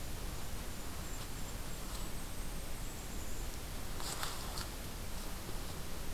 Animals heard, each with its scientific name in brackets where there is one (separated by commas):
Golden-crowned Kinglet (Regulus satrapa)